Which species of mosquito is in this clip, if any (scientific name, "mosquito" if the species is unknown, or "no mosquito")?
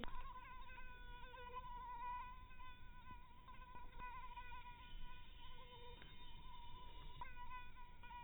mosquito